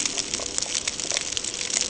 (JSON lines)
{"label": "ambient", "recorder": "HydroMoth"}